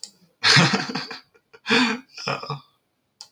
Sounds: Laughter